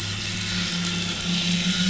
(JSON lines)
{"label": "anthrophony, boat engine", "recorder": "SoundTrap 500"}